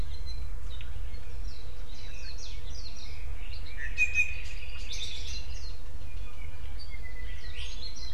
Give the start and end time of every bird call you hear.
0.1s-0.6s: Iiwi (Drepanis coccinea)
4.0s-4.4s: Iiwi (Drepanis coccinea)
6.1s-8.1s: Apapane (Himatione sanguinea)

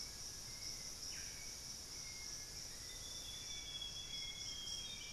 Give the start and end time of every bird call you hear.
0.1s-5.1s: Hauxwell's Thrush (Turdus hauxwelli)
0.9s-1.5s: Solitary Black Cacique (Cacicus solitarius)
2.4s-5.1s: Amazonian Grosbeak (Cyanoloxia rothschildii)

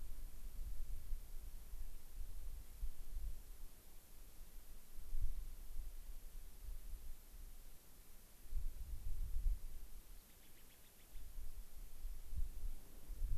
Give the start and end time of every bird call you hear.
10.2s-11.3s: White-crowned Sparrow (Zonotrichia leucophrys)

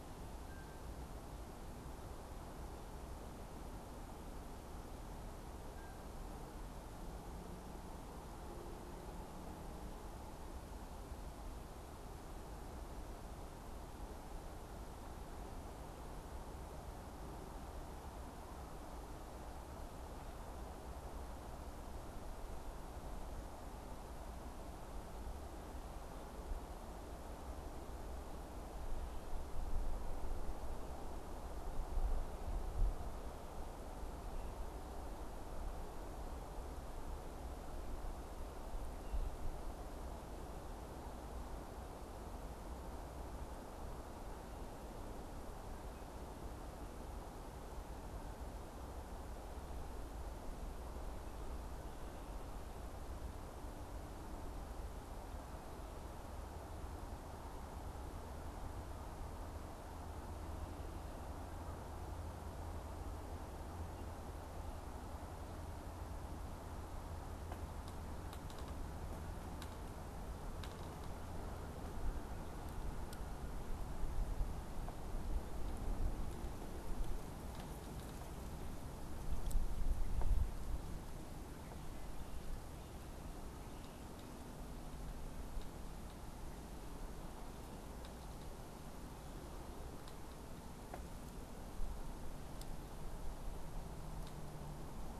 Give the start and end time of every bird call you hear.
0.4s-0.9s: unidentified bird
5.7s-6.0s: unidentified bird

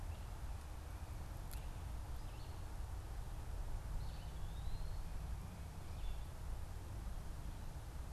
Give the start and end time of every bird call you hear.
0.0s-8.1s: Red-eyed Vireo (Vireo olivaceus)

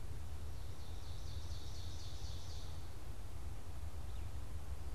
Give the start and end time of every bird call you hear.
0.2s-2.9s: Ovenbird (Seiurus aurocapilla)

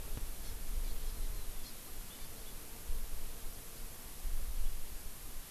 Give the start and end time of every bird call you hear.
0.4s-0.5s: Hawaii Amakihi (Chlorodrepanis virens)
0.8s-1.1s: Hawaii Amakihi (Chlorodrepanis virens)
1.6s-1.7s: Hawaii Amakihi (Chlorodrepanis virens)
2.1s-2.3s: Hawaii Amakihi (Chlorodrepanis virens)

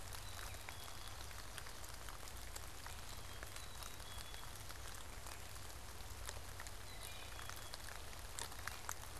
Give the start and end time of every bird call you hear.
0.0s-8.0s: Black-capped Chickadee (Poecile atricapillus)
6.7s-7.8s: Wood Thrush (Hylocichla mustelina)

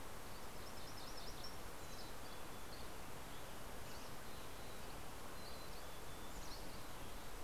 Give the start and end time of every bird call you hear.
0.1s-1.7s: MacGillivray's Warbler (Geothlypis tolmiei)
1.8s-2.7s: Mountain Chickadee (Poecile gambeli)
1.8s-3.2s: Dusky Flycatcher (Empidonax oberholseri)
5.3s-7.3s: Mountain Chickadee (Poecile gambeli)

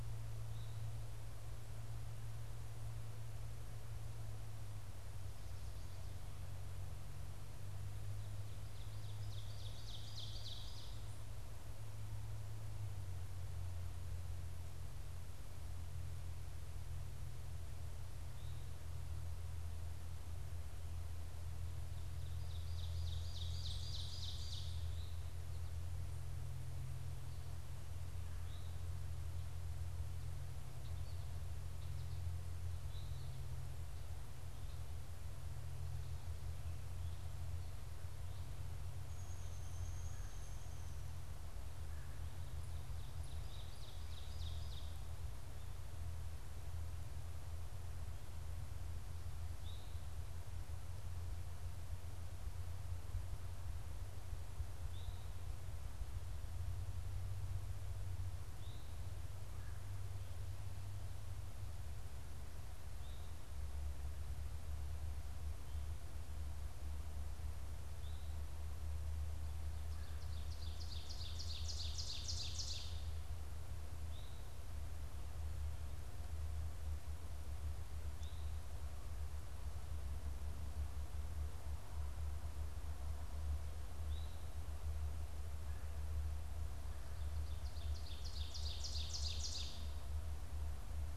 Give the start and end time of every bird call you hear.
8.5s-11.2s: Ovenbird (Seiurus aurocapilla)
21.6s-25.3s: Ovenbird (Seiurus aurocapilla)
38.8s-41.2s: Downy Woodpecker (Dryobates pubescens)
39.9s-42.3s: Red-bellied Woodpecker (Melanerpes carolinus)
42.8s-45.1s: Ovenbird (Seiurus aurocapilla)
49.4s-55.5s: Eastern Towhee (Pipilo erythrophthalmus)
58.4s-68.5s: Eastern Towhee (Pipilo erythrophthalmus)
59.3s-60.1s: Red-bellied Woodpecker (Melanerpes carolinus)
70.2s-73.2s: Ovenbird (Seiurus aurocapilla)
74.0s-84.6s: Eastern Towhee (Pipilo erythrophthalmus)
86.8s-90.3s: Ovenbird (Seiurus aurocapilla)

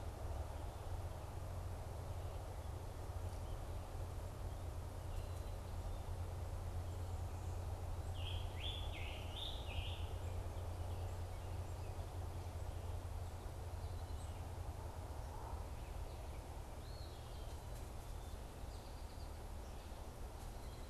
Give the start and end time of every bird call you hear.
8.1s-10.1s: Scarlet Tanager (Piranga olivacea)
16.7s-17.6s: Eastern Wood-Pewee (Contopus virens)

